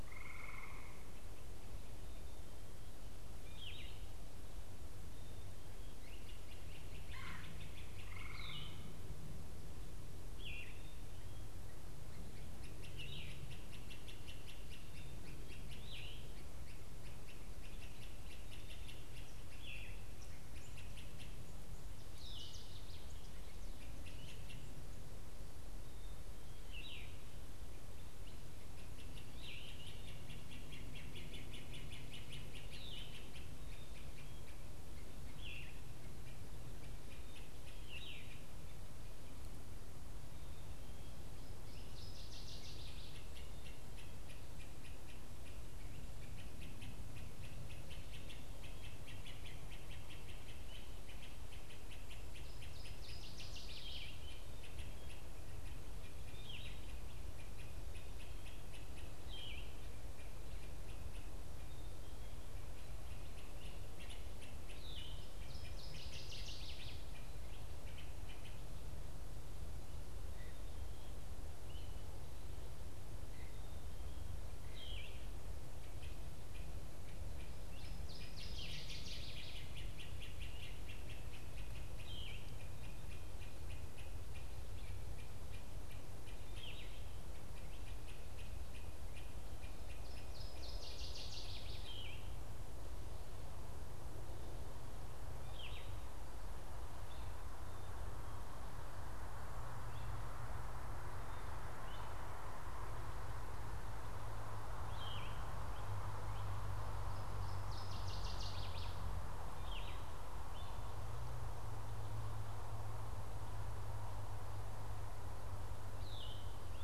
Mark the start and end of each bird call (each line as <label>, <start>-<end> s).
Yellow-throated Vireo (Vireo flavifrons), 0.0-4.2 s
Great Crested Flycatcher (Myiarchus crinitus), 5.6-62.0 s
unidentified bird, 6.9-7.5 s
Yellow-throated Vireo (Vireo flavifrons), 8.1-59.8 s
Northern Waterthrush (Parkesia noveboracensis), 21.8-23.4 s
Northern Waterthrush (Parkesia noveboracensis), 41.2-43.5 s
Northern Waterthrush (Parkesia noveboracensis), 52.4-54.5 s
Great Crested Flycatcher (Myiarchus crinitus), 62.8-92.4 s
Yellow-throated Vireo (Vireo flavifrons), 64.7-65.4 s
Northern Waterthrush (Parkesia noveboracensis), 65.1-67.3 s
Yellow-throated Vireo (Vireo flavifrons), 74.5-116.8 s
Northern Waterthrush (Parkesia noveboracensis), 106.9-109.2 s